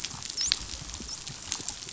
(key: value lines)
label: biophony, dolphin
recorder: SoundTrap 500